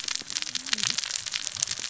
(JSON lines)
{"label": "biophony, cascading saw", "recorder": "SoundTrap 600 or HydroMoth"}